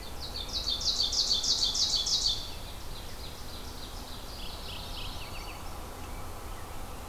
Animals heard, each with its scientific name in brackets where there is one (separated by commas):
Eastern Wood-Pewee (Contopus virens), Mourning Warbler (Geothlypis philadelphia), Ovenbird (Seiurus aurocapilla)